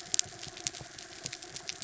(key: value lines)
label: anthrophony, mechanical
recorder: SoundTrap 300